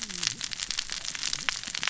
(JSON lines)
{"label": "biophony, cascading saw", "recorder": "SoundTrap 600 or HydroMoth"}